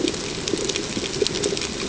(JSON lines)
{"label": "ambient", "recorder": "HydroMoth"}